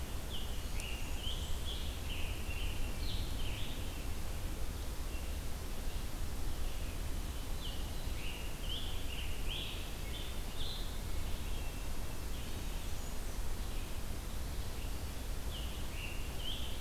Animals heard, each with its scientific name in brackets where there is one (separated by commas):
Scarlet Tanager (Piranga olivacea), Blackburnian Warbler (Setophaga fusca), Hermit Thrush (Catharus guttatus), Red-eyed Vireo (Vireo olivaceus)